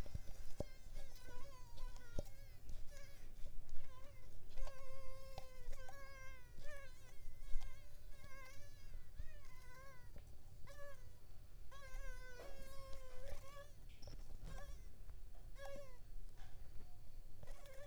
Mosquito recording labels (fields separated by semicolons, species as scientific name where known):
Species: Mansonia africanus; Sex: female; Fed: unfed; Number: one; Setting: cup